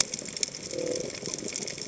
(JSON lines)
{"label": "biophony", "recorder": "HydroMoth"}